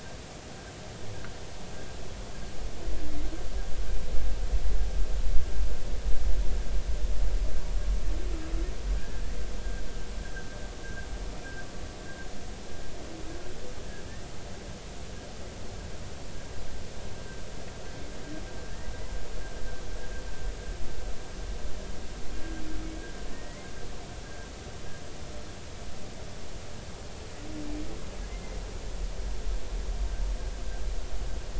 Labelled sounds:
23.3	23.6	humpback whale, 1.7 to 2.0 kHz

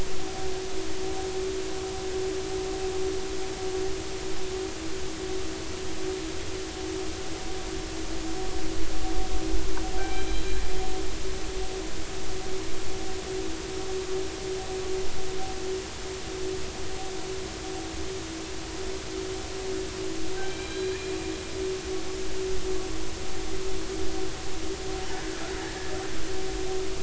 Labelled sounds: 10.0	10.5	killer whale, northern resident, 1.4 to 4.0 kHz
20.4	21.0	killer whale, northern resident, 2.3 to 4.2 kHz
25.7	25.9	killer whale, northern resident, 1.7 to 2.0 kHz

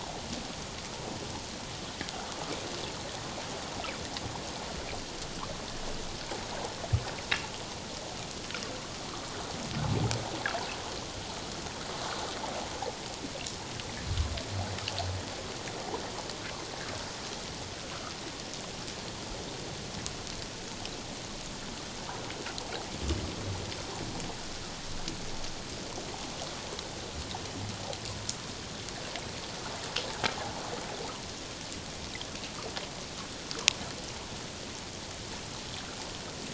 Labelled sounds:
30.4	30.6	water noise, 0.78 to 0.97 kHz
33.5	33.8	water noise, 0.88 to 1.6 kHz

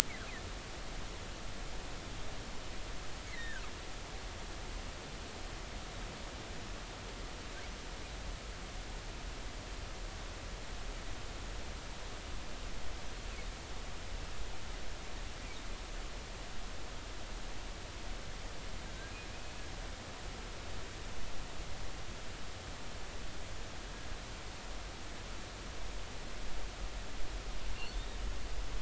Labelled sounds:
3.2	3.6	humpback whale, 1.4 to 2.3 kHz
18.9	19.2	humpback whale, 1.5 to 1.7 kHz

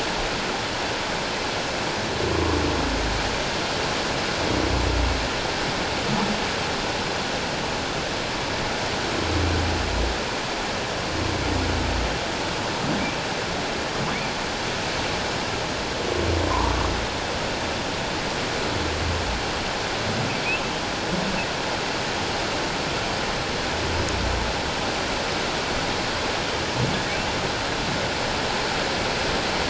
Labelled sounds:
16.5	16.8	humpback whale, 0.81 to 1.2 kHz

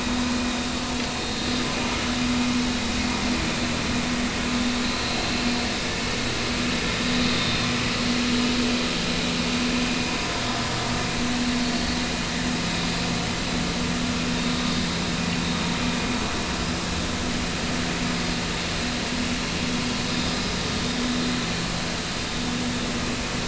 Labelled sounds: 1.2	1.4	vessel noise, 4.1 to 4.3 kHz
4.8	5.2	vessel noise, 4.0 to 4.3 kHz
7.3	7.6	vessel noise, 3.6 to 3.7 kHz
15.4	15.7	vessel noise, 3.7 to 3.9 kHz
20.1	20.3	vessel noise, 3.6 to 3.7 kHz

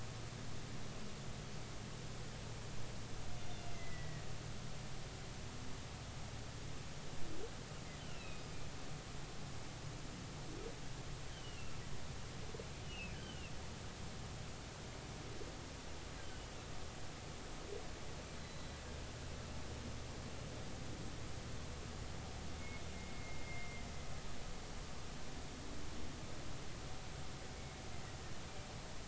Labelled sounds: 3.7	4.2	humpback whale, 1.8 to 2.1 kHz
8.0	8.5	humpback whale, 2.4 to 4.0 kHz
11.3	11.7	humpback whale, 2.6 to 3.3 kHz
12.8	13.5	humpback whale, 2.3 to 3.2 kHz
18.4	18.8	humpback whale, 3.9 to 4.1 kHz
22.6	23.8	humpback whale, 2.0 to 2.2 kHz

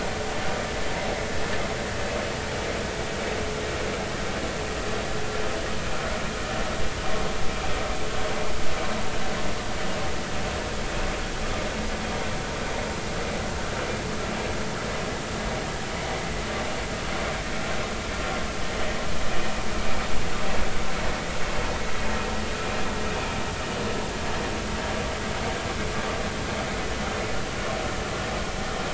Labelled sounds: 18.8	19.0	vessel noise, 1.8 to 2.0 kHz

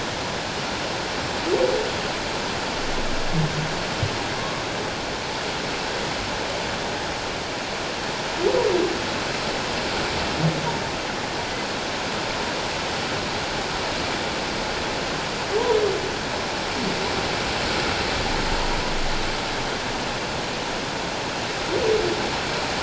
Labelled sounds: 4.3	4.6	humpback whale, 1.0 to 1.2 kHz

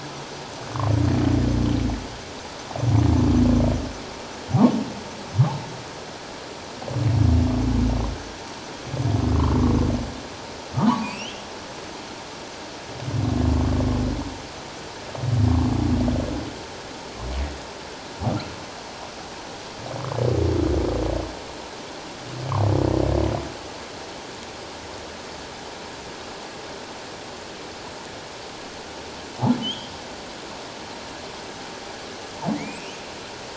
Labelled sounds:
10.7	11.4	humpback whale, 0.84 to 3.4 kHz
29.6	29.9	humpback whale, 2.9 to 3.6 kHz
32.5	33.0	humpback whale, 1.8 to 3.2 kHz

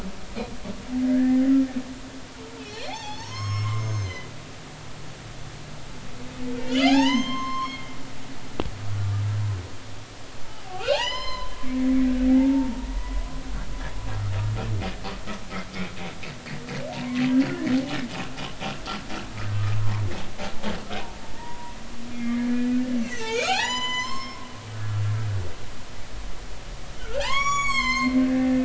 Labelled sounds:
1.0	1.4	humpback whale, 1.5 to 1.9 kHz
2.6	4.3	humpback whale, 0.80 to 7.6 kHz
6.7	7.9	humpback whale, 0.80 to 6.4 kHz
10.6	11.6	humpback whale, 0.80 to 7.3 kHz
12.3	13.2	humpback whale, 0.80 to 1.0 kHz
16.9	17.2	humpback whale, 0.86 to 1.1 kHz
21.3	25.0	humpback whale, 0.80 to 8.0 kHz
27.0	28.6	humpback whale, 0.80 to 8.0 kHz

